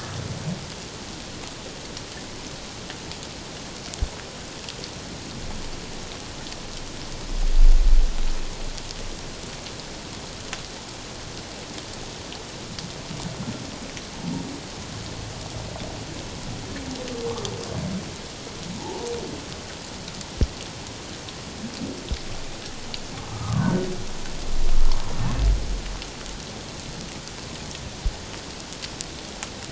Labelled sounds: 18.7	19.1	humpback whale, 0.78 to 1.0 kHz
23.3	23.9	humpback whale, 0.91 to 1.6 kHz

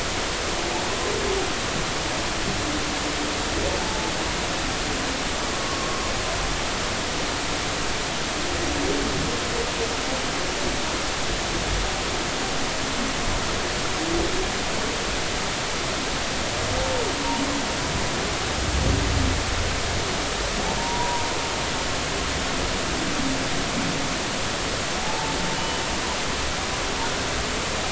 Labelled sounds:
3.8	4.1	humpback whale, 0.80 to 0.90 kHz
20.8	21.3	humpback whale, 0.86 to 1.1 kHz
25.0	25.8	humpback whale, 0.80 to 3.0 kHz

